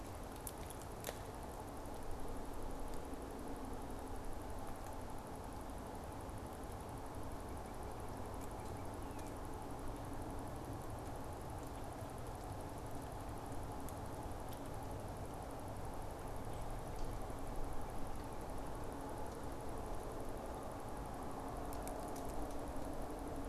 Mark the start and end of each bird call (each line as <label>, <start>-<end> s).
Northern Cardinal (Cardinalis cardinalis), 7.4-9.4 s